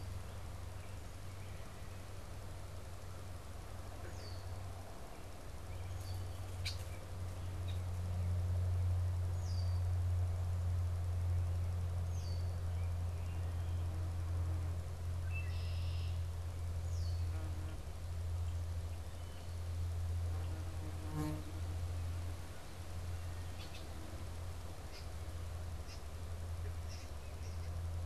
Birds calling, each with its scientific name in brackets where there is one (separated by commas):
American Robin (Turdus migratorius), Red-winged Blackbird (Agelaius phoeniceus)